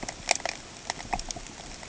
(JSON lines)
{"label": "ambient", "recorder": "HydroMoth"}